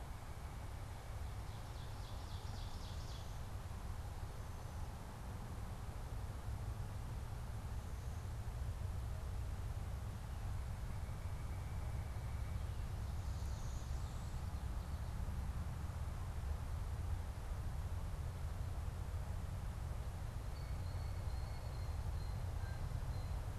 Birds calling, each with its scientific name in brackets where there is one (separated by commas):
Blue Jay (Cyanocitta cristata), Ovenbird (Seiurus aurocapilla)